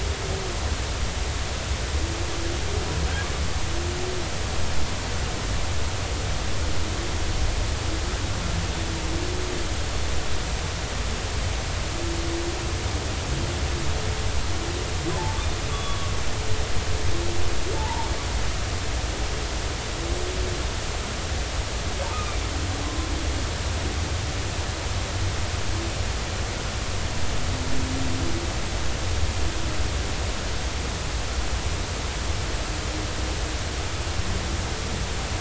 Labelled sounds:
15.1	15.4	humpback whale, 0.83 to 1.1 kHz
15.7	16.1	humpback whale, 1.1 to 3.5 kHz
17.7	18.1	humpback whale, 0.80 to 1.0 kHz

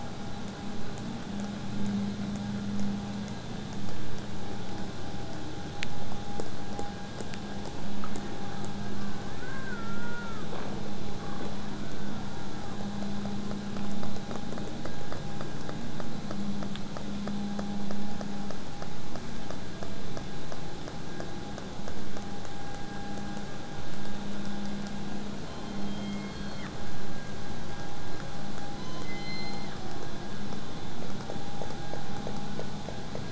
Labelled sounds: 25.5	26.7	killer whale, southern resident, J pod, call S03, 0.53 to 8.0 kHz
28.8	30.1	killer whale, southern resident, J pod, call S03, 0.81 to 8.0 kHz

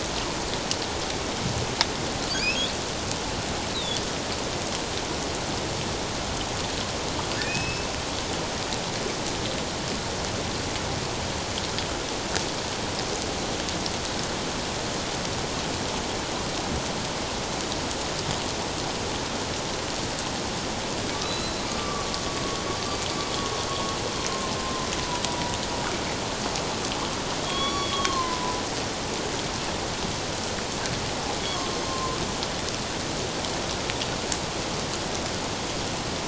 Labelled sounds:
2.3	2.6	humpback whale, 4.4 to 5.4 kHz
3.7	4.0	humpback whale, 3.3 to 4.2 kHz
7.4	7.9	humpback whale, 2.4 to 5.3 kHz
21.2	22.1	humpback whale, 1.1 to 4.1 kHz
22.4	22.6	humpback whale, 1.06 to 1.12 kHz
25.3	25.5	humpback whale, 0.91 to 1.0 kHz
27.4	28.6	humpback whale, 0.94 to 5.7 kHz
31.5	32.2	humpback whale, 0.97 to 1.2 kHz

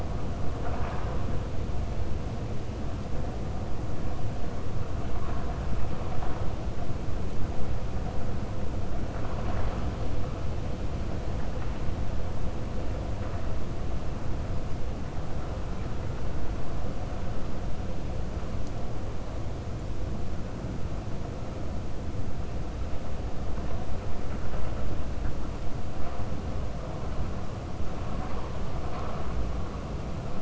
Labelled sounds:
0.5	1.2	vessel noise, 0.56 to 3.5 kHz

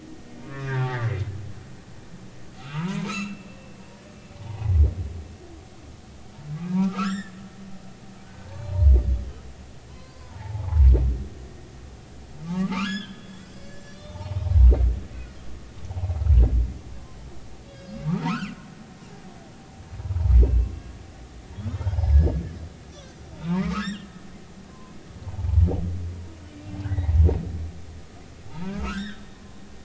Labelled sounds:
0.4	1.1	humpback whale, 0.80 to 2.7 kHz
2.6	3.6	humpback whale, 0.86 to 4.2 kHz
4.3	4.6	humpback whale, 0.80 to 1.2 kHz
6.8	7.3	humpback whale, 1.1 to 7.6 kHz
8.2	8.9	humpback whale, 0.80 to 4.3 kHz
9.9	10.9	humpback whale, 0.80 to 1.2 kHz
12.4	14.4	humpback whale, 0.80 to 7.5 kHz
17.7	18.7	humpback whale, 1.2 to 5.1 kHz
20.0	20.7	humpback whale, 0.83 to 2.7 kHz
21.7	22.4	humpback whale, 1.6 to 5.7 kHz
23.3	25.0	humpback whale, 0.83 to 7.6 kHz
25.4	27.2	humpback whale, 0.80 to 2.8 kHz
28.5	29.6	humpback whale, 0.83 to 3.9 kHz

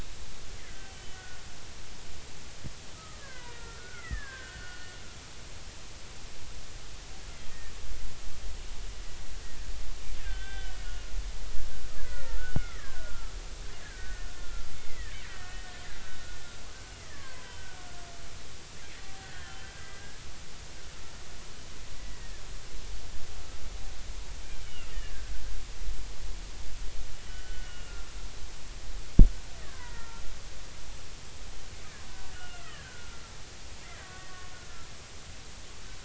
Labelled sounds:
0.6	1.4	killer whale, Bigg's (transient), 1.4 to 3.1 kHz
3.0	4.9	killer whale, Bigg's (transient), 0.90 to 2.2 kHz
10.2	11.1	killer whale, Bigg's (transient), 1.4 to 3.6 kHz
12.0	13.3	killer whale, Bigg's (transient), 0.86 to 2.3 kHz
13.8	15.8	killer whale, Bigg's (transient), 1.3 to 2.7 kHz
17.0	17.6	killer whale, Bigg's (transient), 0.93 to 2.1 kHz
19.2	20.2	killer whale, Bigg's (transient), 1.3 to 3.4 kHz
24.6	25.3	killer whale, Bigg's (transient), 1.5 to 3.1 kHz
27.3	28.2	killer whale, Bigg's (transient), 1.3 to 3.1 kHz
29.6	30.2	killer whale, Bigg's (transient), 0.90 to 2.1 kHz
32.3	33.2	killer whale, Bigg's (transient), 1.1 to 2.9 kHz
33.8	34.3	killer whale, Bigg's (transient), 1.1 to 2.1 kHz

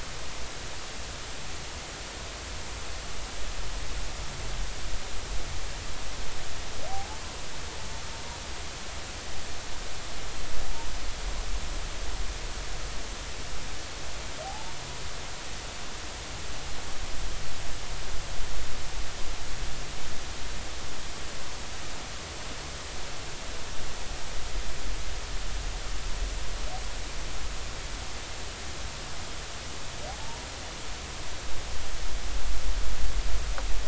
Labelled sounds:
6.9	7.2	humpback whale, 0.80 to 0.93 kHz
14.4	14.7	humpback whale, 0.80 to 0.96 kHz
30.2	30.5	humpback whale, 0.83 to 1.0 kHz

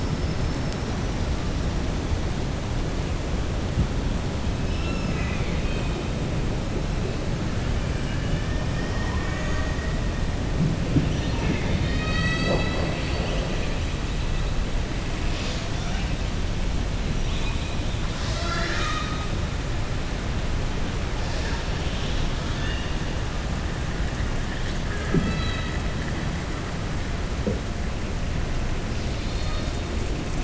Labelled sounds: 4.6	6.0	killer whale, southern resident, 1.3 to 5.4 kHz
7.9	8.5	killer whale, southern resident, 1.5 to 3.5 kHz

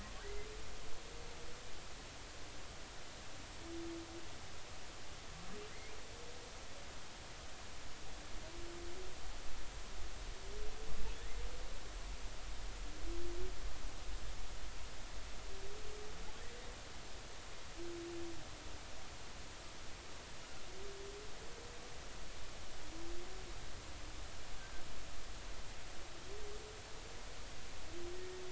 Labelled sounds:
28.1	28.4	humpback whale, 1.8 to 2.0 kHz

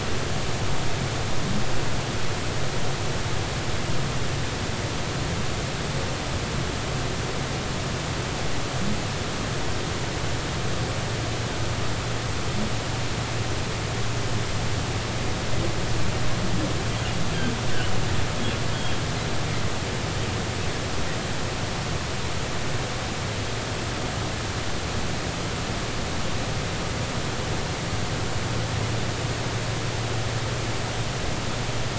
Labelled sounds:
18.7	19.0	humpback whale, 3.1 to 3.3 kHz

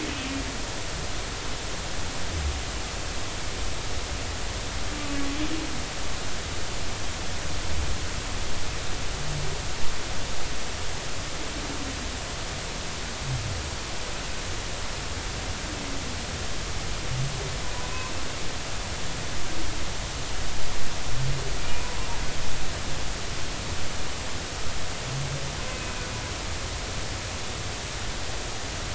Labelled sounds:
4.9	5.2	humpback whale, 1.1 to 1.2 kHz
17.7	18.1	humpback whale, 0.93 to 1.1 kHz
21.6	21.9	humpback whale, 2.3 to 2.5 kHz

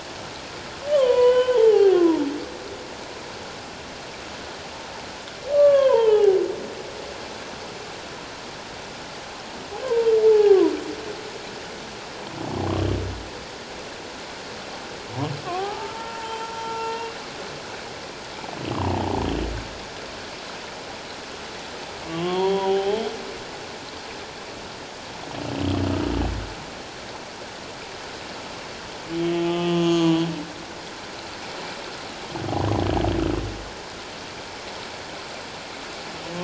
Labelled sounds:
0.9	2.2	humpback whale, 0.78 to 4.6 kHz
5.5	6.4	humpback whale, 0.78 to 3.3 kHz
10.2	10.6	humpback whale, 0.78 to 0.91 kHz
15.5	17.0	humpback whale, 0.78 to 3.2 kHz
22.1	23.0	humpback whale, 0.78 to 4.5 kHz
29.2	30.2	humpback whale, 0.94 to 6.7 kHz

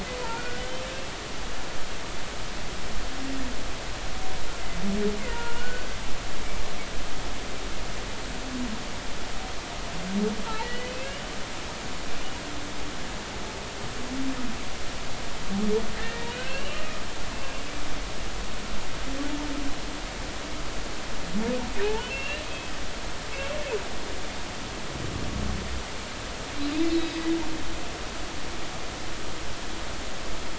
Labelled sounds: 0.2	0.6	humpback whale, 1.3 to 1.6 kHz
5.3	6.0	humpback whale, 0.90 to 1.5 kHz
10.6	11.2	humpback whale, 1.9 to 2.9 kHz
16.0	16.8	humpback whale, 1.4 to 4.1 kHz
22.0	22.7	humpback whale, 2.5 to 2.9 kHz
26.9	27.2	humpback whale, 3.8 to 4.1 kHz

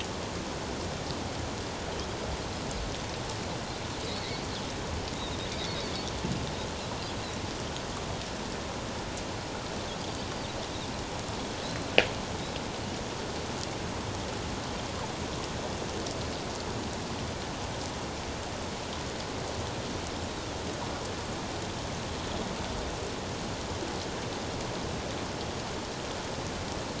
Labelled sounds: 11.6	11.9	Pacific white-sided dolphin, 3.8 to 4.2 kHz

